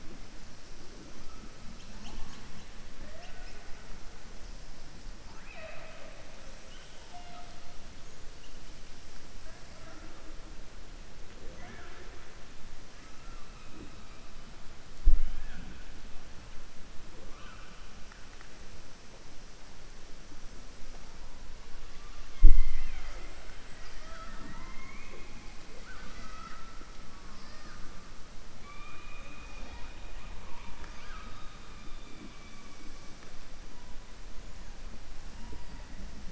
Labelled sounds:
25.7	26.7	killer whale, southern resident, 0.52 to 6.6 kHz

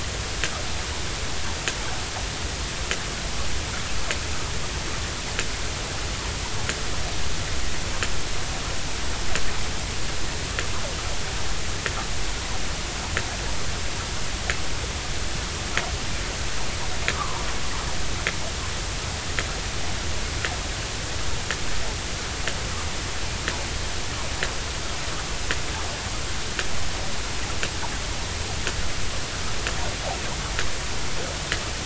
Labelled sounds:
17.1	17.4	fish, 0.86 to 1.3 kHz

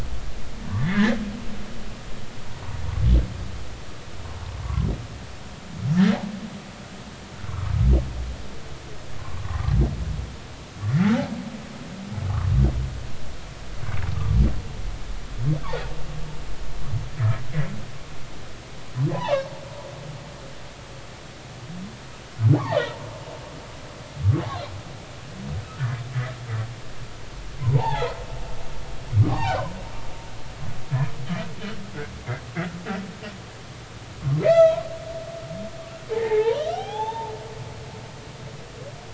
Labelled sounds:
0.7	1.2	humpback whale, 1.6 to 2.2 kHz
7.5	7.7	humpback whale, 1.0 to 1.4 kHz
9.2	9.4	humpback whale, 0.99 to 1.2 kHz
10.8	11.0	humpback whale, 1.7 to 2.2 kHz
17.2	17.4	humpback whale, 1.6 to 2.0 kHz
19.1	19.5	humpback whale, 0.80 to 3.1 kHz
27.6	28.1	humpback whale, 0.80 to 3.6 kHz
29.2	29.6	humpback whale, 0.80 to 4.0 kHz
34.4	34.8	humpback whale, 1.2 to 6.1 kHz
36.1	37.3	humpback whale, 0.80 to 3.7 kHz

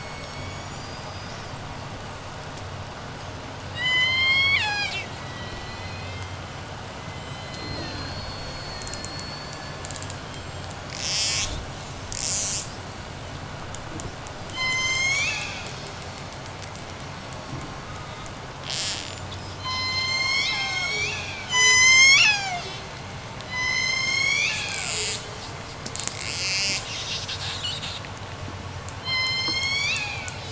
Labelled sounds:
3.6	5.3	killer whale, J pod, call S01, 0.47 to 8.0 kHz
5.2	12.9	killer whale, J pod, 1.3 to 8.0 kHz
14.3	16.1	killer whale, J pod, call S01, 0.65 to 8.0 kHz
17.2	19.4	killer whale, J pod, 0.79 to 8.0 kHz
19.5	25.6	killer whale, J pod, call S01, 0.33 to 8.0 kHz
25.9	28.5	killer whale, J pod, 1.3 to 8.0 kHz
29.0	30.5	killer whale, J pod, call S01, 1.0 to 8.0 kHz

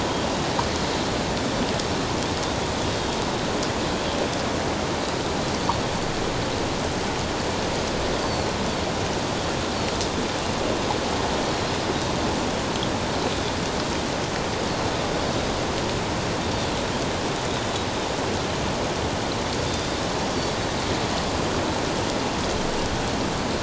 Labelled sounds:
8.2	8.5	Pacific white-sided dolphin, 4.1 to 4.6 kHz

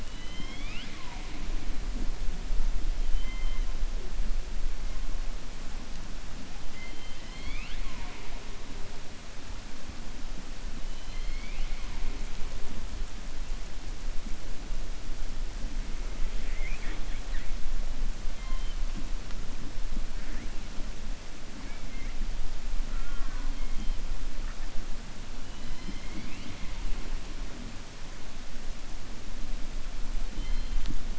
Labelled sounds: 0.0	1.4	killer whale, 0.78 to 5.4 kHz
6.6	8.4	killer whale, 0.65 to 5.0 kHz
10.9	12.0	killer whale, 2.0 to 4.5 kHz

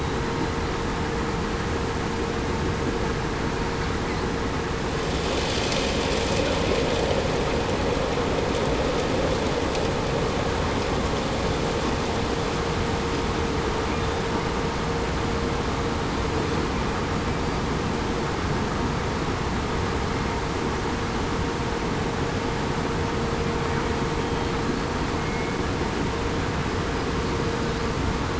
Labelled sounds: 25.2	25.6	killer whale, southern resident, 2.1 to 2.2 kHz

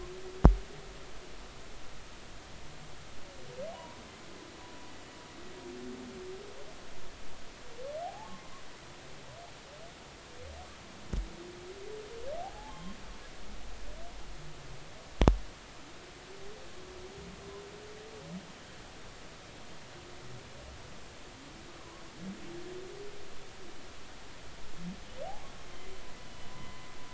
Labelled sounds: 3.7	4.0	humpback whale, 0.90 to 1.1 kHz
8.0	8.4	humpback whale, 0.80 to 0.93 kHz
12.4	12.9	humpback whale, 0.80 to 3.3 kHz
26.2	26.8	humpback whale, 0.96 to 3.1 kHz

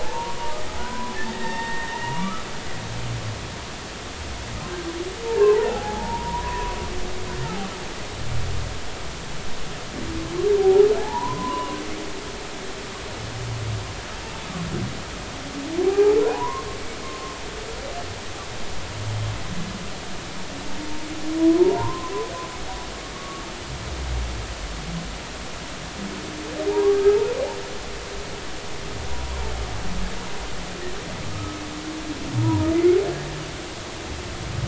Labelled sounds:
0.0	2.5	humpback whale, 0.80 to 2.9 kHz
5.7	6.8	humpback whale, 0.80 to 1.2 kHz
7.4	7.7	humpback whale, 0.80 to 0.93 kHz
10.6	11.8	humpback whale, 0.80 to 1.2 kHz
15.8	16.7	humpback whale, 0.80 to 1.1 kHz
21.6	22.1	humpback whale, 0.83 to 1.2 kHz
23.1	23.4	humpback whale, 1.1 to 1.2 kHz
26.7	27.0	humpback whale, 0.80 to 1.2 kHz
31.3	31.6	humpback whale, 1.2 to 1.3 kHz
32.4	33.0	humpback whale, 0.90 to 2.3 kHz

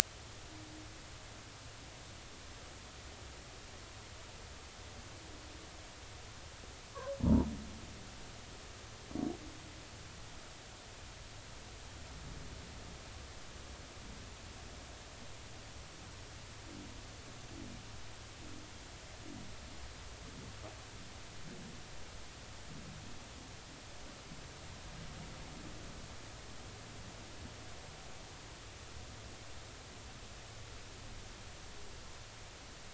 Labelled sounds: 7.2	7.5	humpback whale, 0.86 to 1.0 kHz

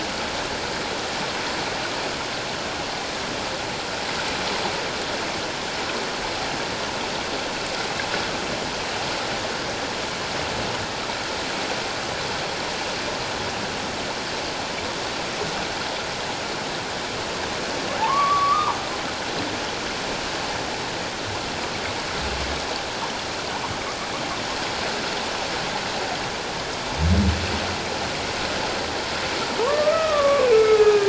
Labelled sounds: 17.9	18.8	humpback whale, 0.78 to 1.3 kHz
29.6	31.0	humpback whale, 0.88 to 2.6 kHz

